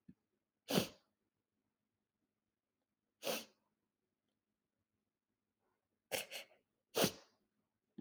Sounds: Sniff